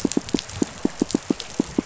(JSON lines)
{"label": "biophony, pulse", "recorder": "SoundTrap 500"}